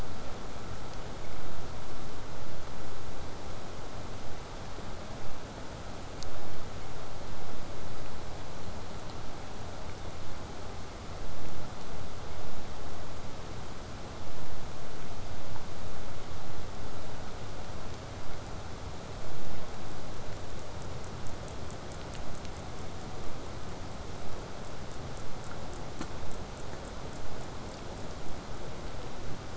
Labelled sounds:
24.6	28.1	killer whale, southern resident, 5.5 to 8.0 kHz

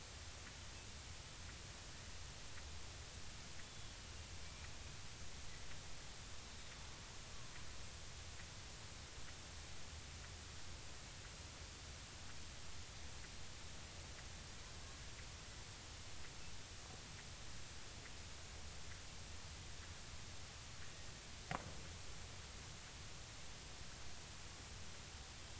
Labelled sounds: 3.6	4.0	killer whale, Bigg's (transient), 3.3 to 3.5 kHz
20.8	21.1	killer whale, Bigg's (transient), 1.8 to 1.9 kHz

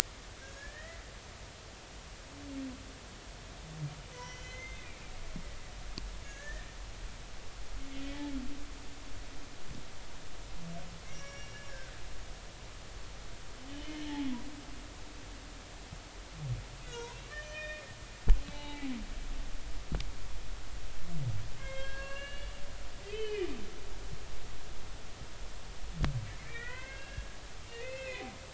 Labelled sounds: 0.4	1.0	humpback whale, 1.5 to 6.9 kHz
4.1	4.9	humpback whale, 0.93 to 6.3 kHz
6.2	6.7	humpback whale, 1.6 to 1.9 kHz
11.0	11.9	humpback whale, 1.4 to 5.7 kHz
13.7	14.0	humpback whale, 2.9 to 3.2 kHz
16.8	17.8	humpback whale, 1.7 to 6.9 kHz
18.5	18.9	humpback whale, 0.80 to 3.8 kHz
21.6	22.5	humpback whale, 0.99 to 7.6 kHz
23.1	23.5	humpback whale, 1.9 to 3.1 kHz
26.5	27.2	humpback whale, 1.4 to 2.8 kHz
27.7	28.2	humpback whale, 1.8 to 2.7 kHz

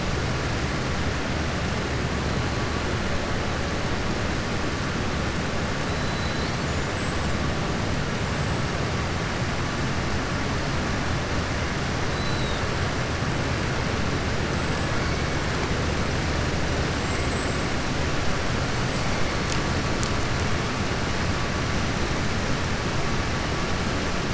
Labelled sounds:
12.1	12.6	killer whale, southern resident, 3.5 to 4.5 kHz
16.9	17.6	killer whale, southern resident, 7.4 to 7.8 kHz

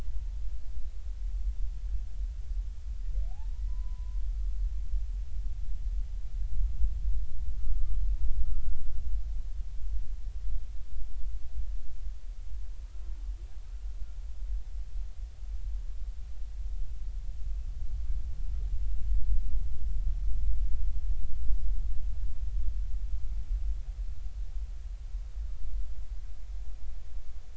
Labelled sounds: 3.3	4.2	humpback whale, 0.80 to 1.1 kHz
8.4	8.8	humpback whale, 1.2 to 1.5 kHz

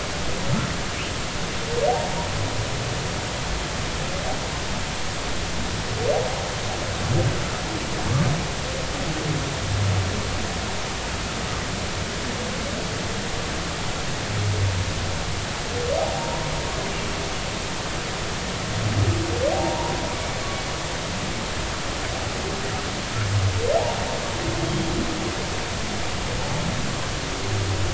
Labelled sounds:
16.2	16.5	humpback whale, 0.90 to 1.1 kHz
19.5	19.9	humpback whale, 0.80 to 1.0 kHz
23.8	24.0	humpback whale, 0.80 to 0.99 kHz
24.6	24.9	humpback whale, 3.2 to 3.4 kHz

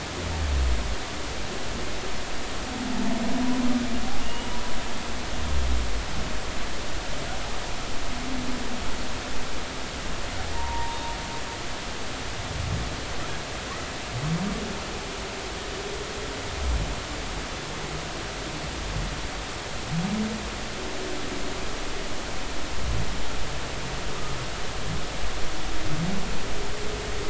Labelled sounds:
4.2	4.6	humpback whale, 2.8 to 3.0 kHz
10.5	11.1	humpback whale, 0.86 to 3.7 kHz

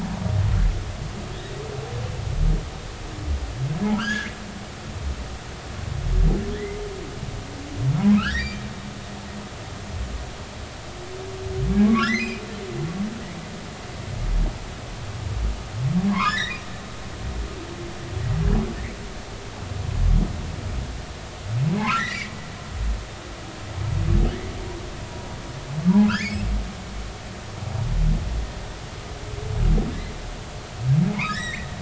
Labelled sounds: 4.0	4.3	humpback whale, 1.1 to 3.5 kHz
6.5	6.8	humpback whale, 1.7 to 2.2 kHz
8.2	8.6	humpback whale, 1.2 to 4.0 kHz
11.8	12.4	humpback whale, 1.0 to 4.2 kHz
16.1	16.6	humpback whale, 0.93 to 5.4 kHz
21.7	22.4	humpback whale, 0.80 to 2.5 kHz
25.0	26.4	humpback whale, 0.80 to 5.4 kHz
31.3	31.7	humpback whale, 1.6 to 7.8 kHz

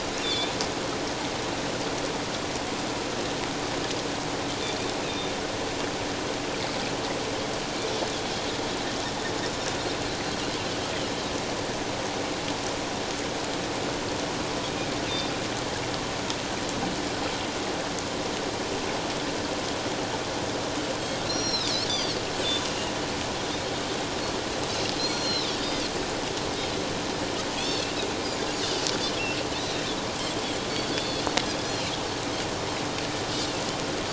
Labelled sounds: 5.0	5.3	Pacific white-sided dolphin, 3.5 to 3.9 kHz
21.3	22.2	Pacific white-sided dolphin, 3.3 to 5.7 kHz
25.0	25.9	Pacific white-sided dolphin, 3.3 to 6.0 kHz
27.6	27.9	Pacific white-sided dolphin, 3.2 to 4.6 kHz
29.5	29.8	Pacific white-sided dolphin, 3.5 to 4.1 kHz
30.7	31.9	Pacific white-sided dolphin, 3.3 to 4.6 kHz

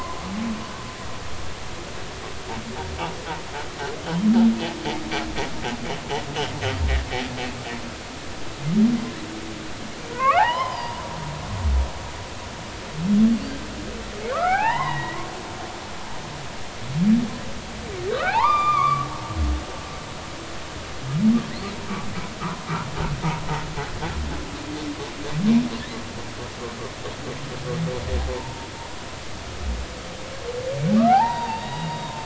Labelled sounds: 10.1	11.0	humpback whale, 0.80 to 5.3 kHz
14.3	16.1	humpback whale, 0.80 to 3.9 kHz
18.1	19.1	humpback whale, 0.80 to 4.9 kHz
22.4	22.7	humpback whale, 0.96 to 1.5 kHz
28.3	28.7	humpback whale, 0.86 to 1.1 kHz
31.0	32.2	humpback whale, 0.80 to 4.8 kHz

